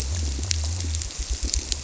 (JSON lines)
{"label": "biophony", "recorder": "SoundTrap 300"}